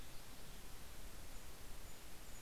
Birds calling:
Golden-crowned Kinglet (Regulus satrapa)

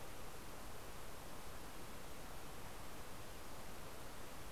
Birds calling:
American Robin (Turdus migratorius)

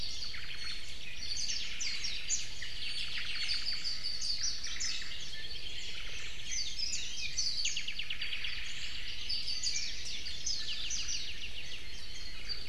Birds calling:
Hawaii Creeper (Loxops mana)
Apapane (Himatione sanguinea)
Omao (Myadestes obscurus)
Warbling White-eye (Zosterops japonicus)
Iiwi (Drepanis coccinea)

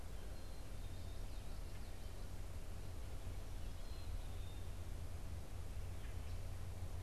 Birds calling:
Black-capped Chickadee (Poecile atricapillus)

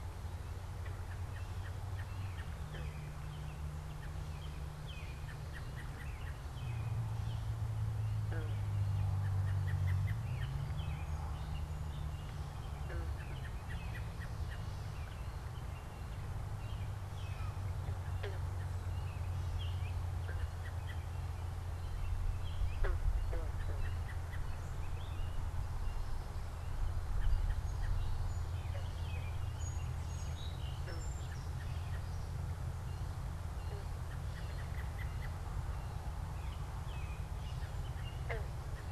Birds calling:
American Robin (Turdus migratorius)
Song Sparrow (Melospiza melodia)

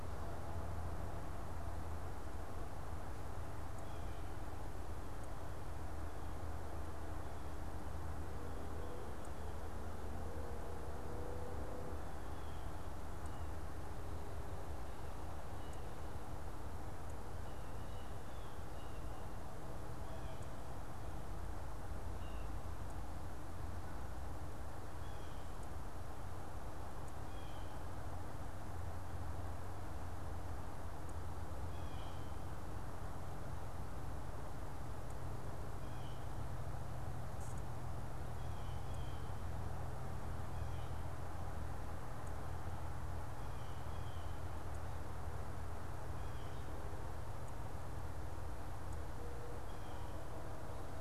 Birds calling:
Blue Jay (Cyanocitta cristata)

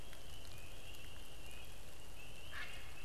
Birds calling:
Great Blue Heron (Ardea herodias)

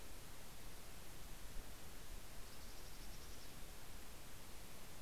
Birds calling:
Mountain Chickadee (Poecile gambeli)

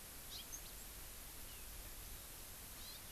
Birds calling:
Hawaii Amakihi (Chlorodrepanis virens)

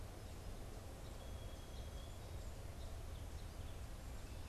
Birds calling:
Song Sparrow (Melospiza melodia)

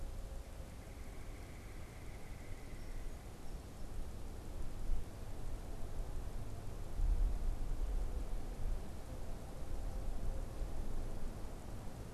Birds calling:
Red-bellied Woodpecker (Melanerpes carolinus)
unidentified bird

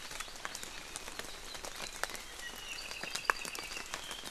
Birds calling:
Apapane (Himatione sanguinea)

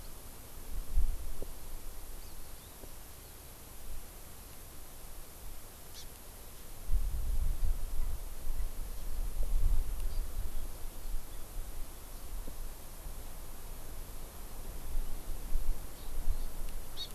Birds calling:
Hawaii Amakihi (Chlorodrepanis virens)

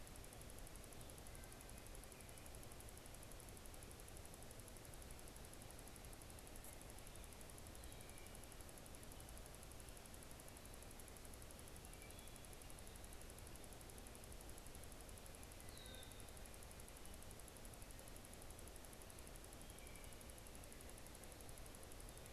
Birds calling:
Red-winged Blackbird (Agelaius phoeniceus)

